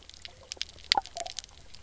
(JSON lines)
{"label": "biophony, knock croak", "recorder": "SoundTrap 300"}